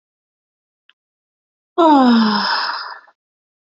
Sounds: Sigh